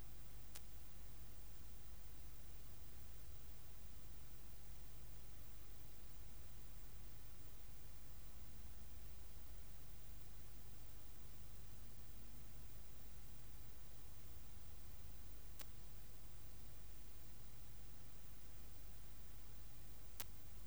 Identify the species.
Poecilimon zwicki